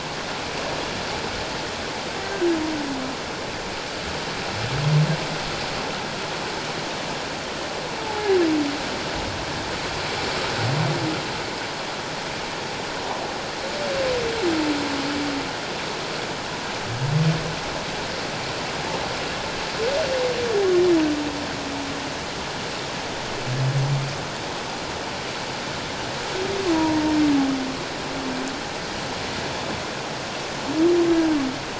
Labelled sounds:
8.0	8.4	humpback whale, 0.78 to 0.91 kHz
26.7	27.0	humpback whale, 0.88 to 1.0 kHz

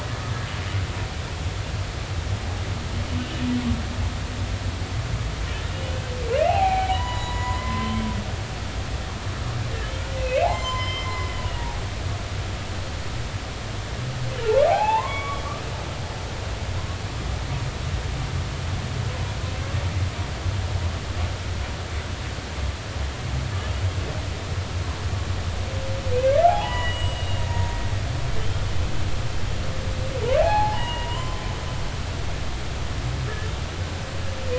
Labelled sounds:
5.7	8.0	humpback whale, 0.80 to 7.0 kHz
10.2	12.2	humpback whale, 0.80 to 7.4 kHz
14.4	15.4	humpback whale, 0.80 to 3.4 kHz
26.5	27.8	humpback whale, 0.80 to 7.8 kHz
30.4	31.4	humpback whale, 0.80 to 4.3 kHz

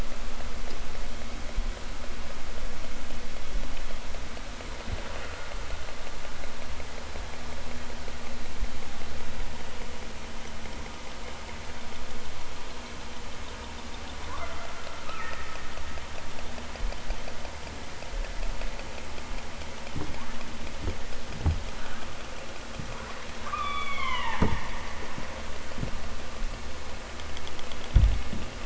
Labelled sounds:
15.0	15.6	killer whale, southern Alaska resident, 0.78 to 3.6 kHz
23.4	24.5	killer whale, southern Alaska resident, 0.46 to 5.1 kHz

